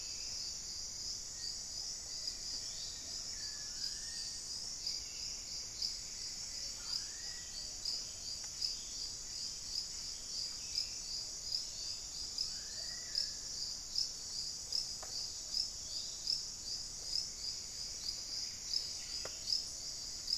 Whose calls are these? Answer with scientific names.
Conioptilon mcilhennyi, Formicarius analis, Myiopagis gaimardii, Cantorchilus leucotis, unidentified bird